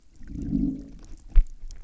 {"label": "biophony, low growl", "recorder": "SoundTrap 300"}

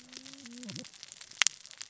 {"label": "biophony, cascading saw", "recorder": "SoundTrap 600 or HydroMoth"}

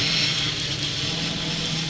{"label": "anthrophony, boat engine", "recorder": "SoundTrap 500"}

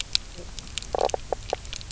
{"label": "biophony, knock croak", "recorder": "SoundTrap 300"}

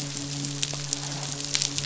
{"label": "biophony, midshipman", "recorder": "SoundTrap 500"}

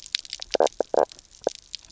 {"label": "biophony, knock croak", "recorder": "SoundTrap 300"}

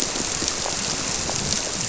{"label": "biophony", "recorder": "SoundTrap 300"}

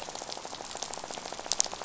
{"label": "biophony, rattle", "recorder": "SoundTrap 500"}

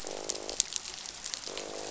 {"label": "biophony, croak", "recorder": "SoundTrap 500"}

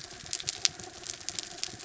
{"label": "anthrophony, mechanical", "recorder": "SoundTrap 300"}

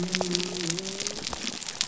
{"label": "biophony", "recorder": "SoundTrap 300"}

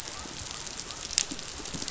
{"label": "biophony", "recorder": "SoundTrap 500"}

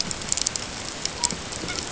{"label": "ambient", "recorder": "HydroMoth"}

